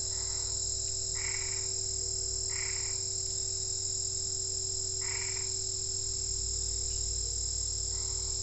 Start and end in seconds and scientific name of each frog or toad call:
0.0	3.0	Boana albopunctata
5.0	5.6	Boana albopunctata
7.9	8.4	Boana albopunctata